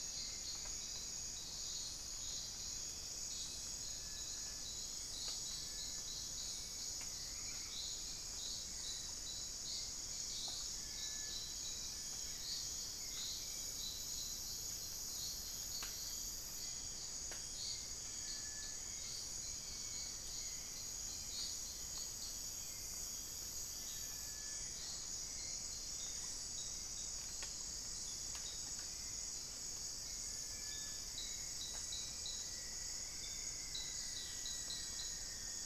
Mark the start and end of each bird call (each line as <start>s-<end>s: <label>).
0.0s-35.7s: Cinereous Tinamou (Crypturellus cinereus)
0.0s-35.7s: Hauxwell's Thrush (Turdus hauxwelli)
31.1s-35.7s: Rufous-fronted Antthrush (Formicarius rufifrons)